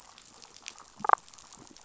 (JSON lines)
{"label": "biophony, damselfish", "recorder": "SoundTrap 500"}